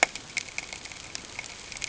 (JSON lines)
{"label": "ambient", "recorder": "HydroMoth"}